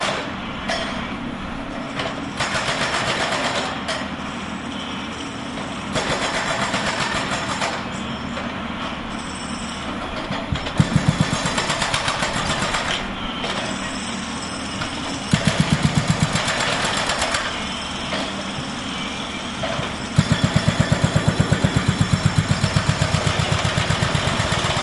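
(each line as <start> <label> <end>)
0.0 A high-pitched metallic impact sound. 1.4
0.0 Ambiance of a metal construction factory. 24.8
2.0 A metal chain rattles in the background. 24.8
2.4 A jackhammer firing rapidly. 4.1
5.9 A jackhammer firing rapidly. 7.9
10.5 A jackhammer firing rapidly. 13.2
15.3 A jackhammer firing rapidly. 17.7
20.2 A jackhammer firing rapidly. 24.8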